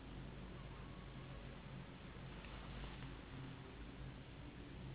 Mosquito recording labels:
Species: Anopheles gambiae s.s.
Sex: female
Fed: unfed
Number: one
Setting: insect culture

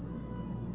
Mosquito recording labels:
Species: Aedes albopictus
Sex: female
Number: one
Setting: insect culture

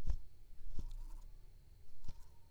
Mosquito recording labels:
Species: Anopheles coustani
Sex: female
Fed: unfed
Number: one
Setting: cup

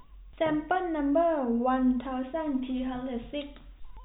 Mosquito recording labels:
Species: no mosquito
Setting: cup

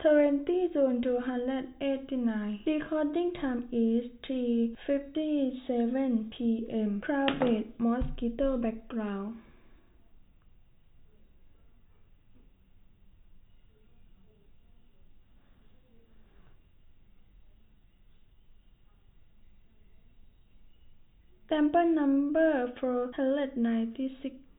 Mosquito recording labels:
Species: no mosquito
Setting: cup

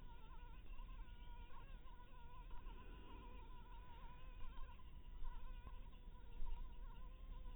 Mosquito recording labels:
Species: Anopheles minimus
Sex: female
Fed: blood-fed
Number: one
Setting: cup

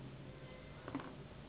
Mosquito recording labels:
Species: Anopheles gambiae s.s.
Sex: female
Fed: unfed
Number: one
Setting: insect culture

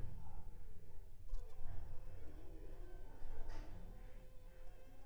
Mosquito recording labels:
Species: Anopheles funestus s.l.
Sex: female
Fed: unfed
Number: one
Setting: cup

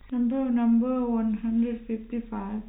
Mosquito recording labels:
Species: no mosquito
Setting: cup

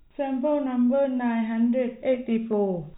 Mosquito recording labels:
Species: no mosquito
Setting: cup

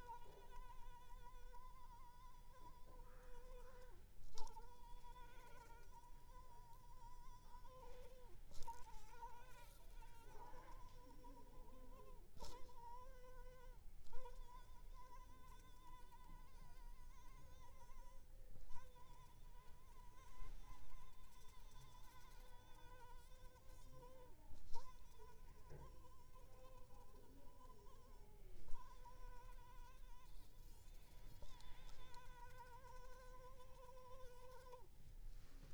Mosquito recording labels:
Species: Anopheles arabiensis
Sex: female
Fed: unfed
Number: one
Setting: cup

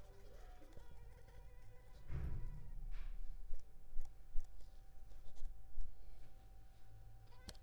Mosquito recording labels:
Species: Culex pipiens complex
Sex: female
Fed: unfed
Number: one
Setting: cup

